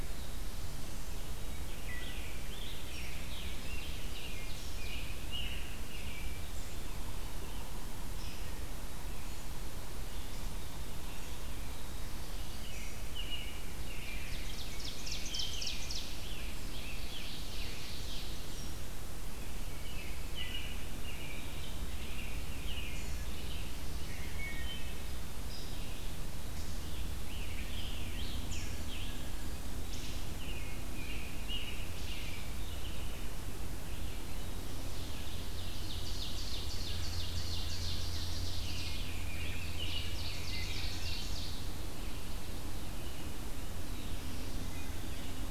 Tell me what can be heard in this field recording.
Black-throated Blue Warbler, Wood Thrush, Scarlet Tanager, Ovenbird, American Robin, Yellow-bellied Sapsucker, Red-eyed Vireo, Rose-breasted Grosbeak